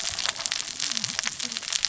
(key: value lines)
label: biophony, cascading saw
recorder: SoundTrap 600 or HydroMoth